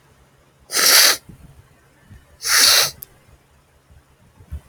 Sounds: Sniff